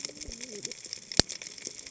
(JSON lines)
{"label": "biophony, cascading saw", "recorder": "HydroMoth"}